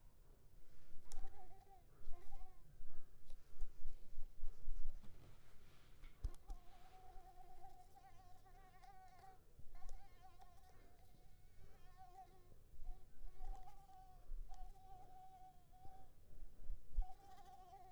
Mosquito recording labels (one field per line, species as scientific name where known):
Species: Anopheles coustani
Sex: female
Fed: unfed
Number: one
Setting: cup